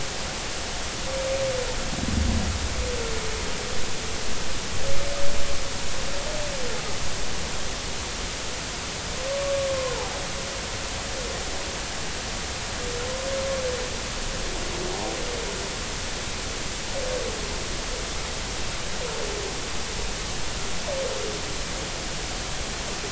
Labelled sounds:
9.7	10.0	humpback whale, 0.96 to 1.1 kHz

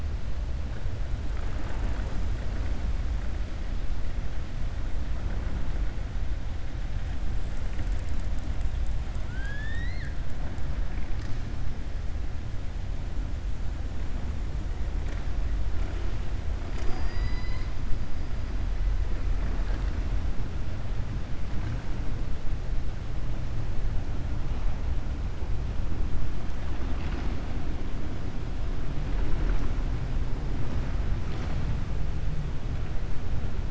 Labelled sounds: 9.2	10.2	killer whale, 1.4 to 5.6 kHz

